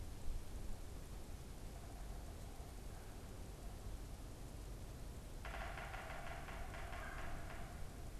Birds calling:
Yellow-bellied Sapsucker (Sphyrapicus varius)

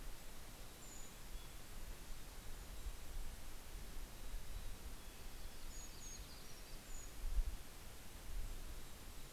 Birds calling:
Yellow-rumped Warbler (Setophaga coronata)
Brown Creeper (Certhia americana)
Golden-crowned Kinglet (Regulus satrapa)
Red-breasted Nuthatch (Sitta canadensis)
Mountain Chickadee (Poecile gambeli)

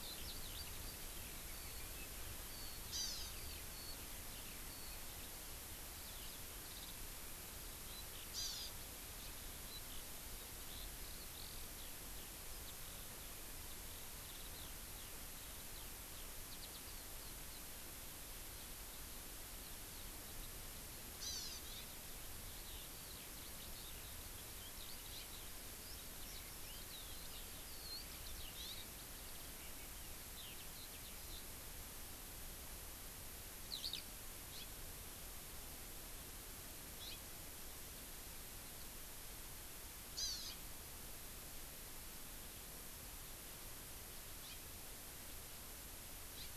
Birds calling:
House Finch (Haemorhous mexicanus)
Hawaii Amakihi (Chlorodrepanis virens)
Warbling White-eye (Zosterops japonicus)
Eurasian Skylark (Alauda arvensis)

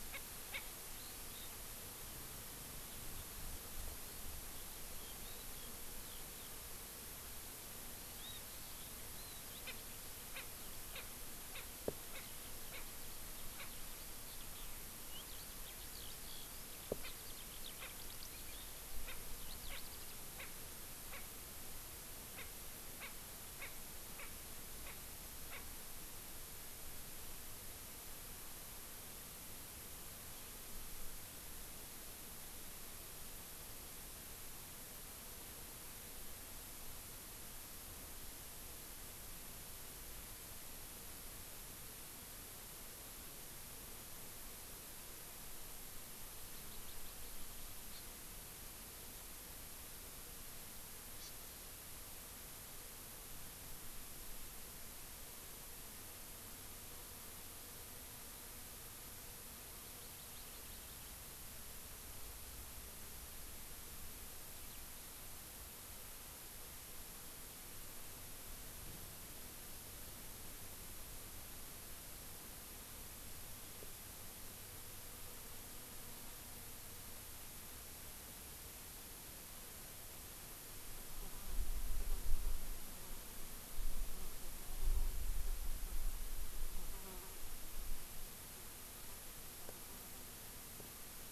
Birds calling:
Hawaii Amakihi (Chlorodrepanis virens)
Erckel's Francolin (Pternistis erckelii)
Eurasian Skylark (Alauda arvensis)

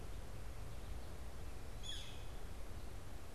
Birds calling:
Northern Flicker (Colaptes auratus)

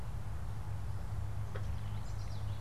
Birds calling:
Common Yellowthroat (Geothlypis trichas)

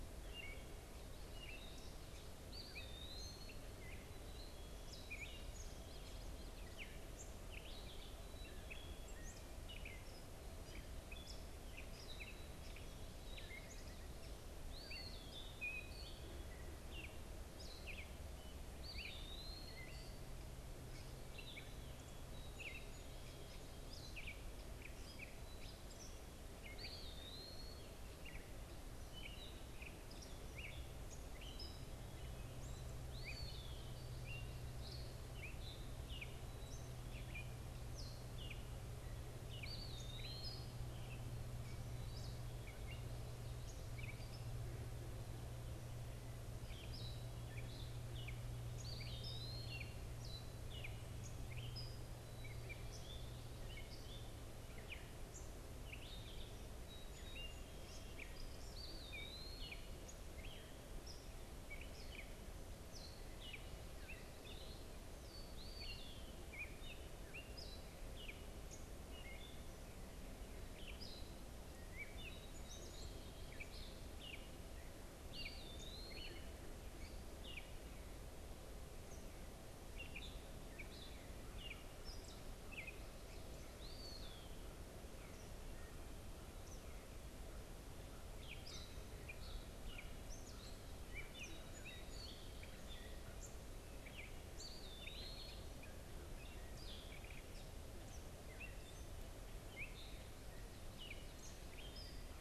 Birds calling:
Black-capped Chickadee (Poecile atricapillus)
Eastern Wood-Pewee (Contopus virens)
Gray Catbird (Dumetella carolinensis)
Common Yellowthroat (Geothlypis trichas)

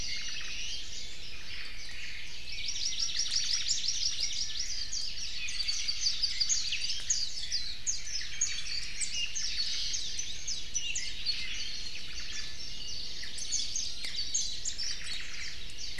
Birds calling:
Iiwi (Drepanis coccinea)
Omao (Myadestes obscurus)
Warbling White-eye (Zosterops japonicus)
Apapane (Himatione sanguinea)
Hawaii Amakihi (Chlorodrepanis virens)

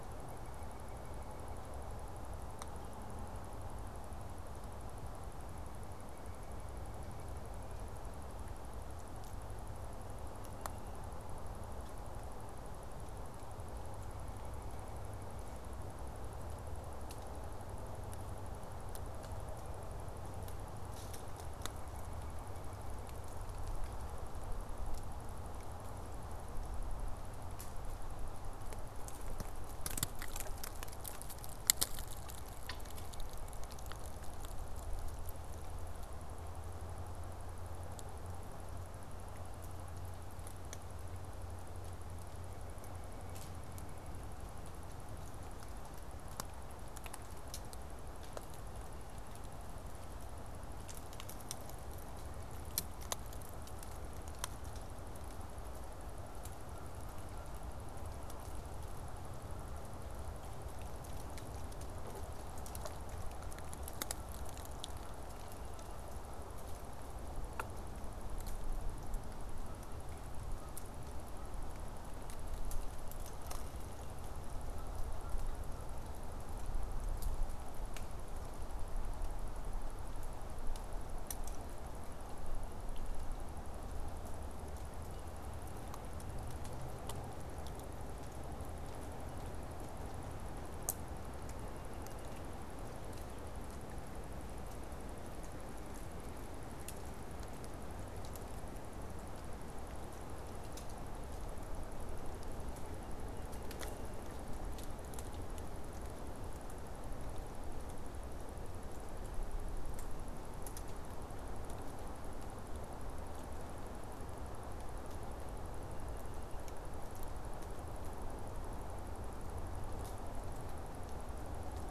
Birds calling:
White-breasted Nuthatch (Sitta carolinensis)

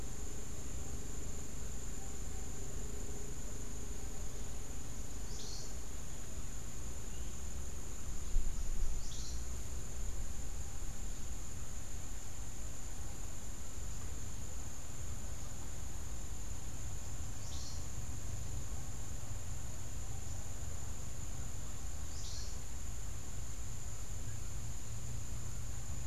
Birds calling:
Cabanis's Wren (Cantorchilus modestus)

